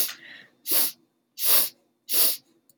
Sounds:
Sniff